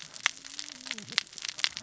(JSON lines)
{"label": "biophony, cascading saw", "recorder": "SoundTrap 600 or HydroMoth"}